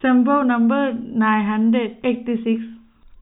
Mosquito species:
no mosquito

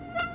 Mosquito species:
Aedes aegypti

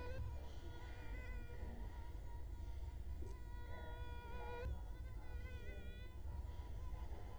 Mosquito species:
Culex quinquefasciatus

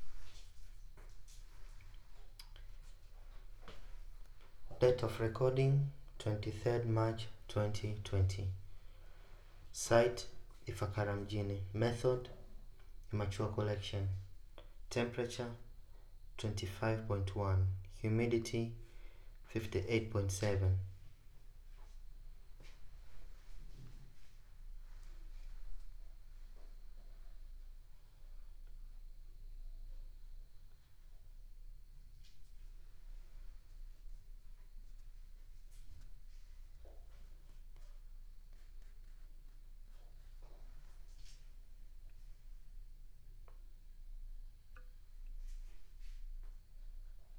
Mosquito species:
no mosquito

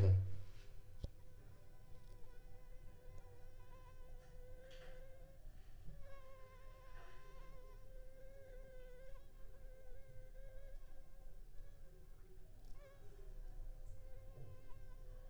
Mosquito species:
Anopheles funestus s.s.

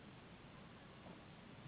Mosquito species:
Anopheles gambiae s.s.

